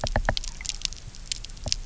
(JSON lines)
{"label": "biophony, knock", "recorder": "SoundTrap 300"}